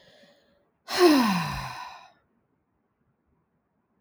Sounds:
Sigh